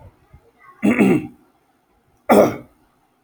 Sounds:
Throat clearing